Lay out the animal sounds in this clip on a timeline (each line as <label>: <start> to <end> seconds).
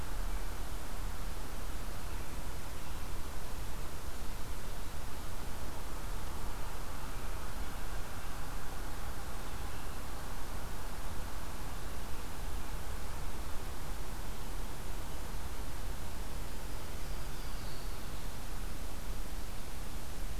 Louisiana Waterthrush (Parkesia motacilla): 16.7 to 18.3 seconds